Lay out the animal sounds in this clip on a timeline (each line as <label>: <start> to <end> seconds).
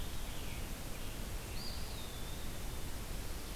Scarlet Tanager (Piranga olivacea): 0.0 to 1.5 seconds
Eastern Wood-Pewee (Contopus virens): 1.4 to 3.2 seconds